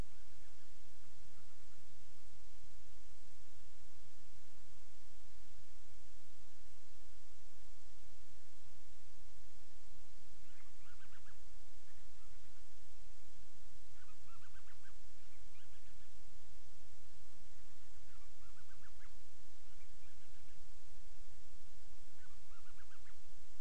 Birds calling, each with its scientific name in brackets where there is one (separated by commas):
Band-rumped Storm-Petrel (Hydrobates castro)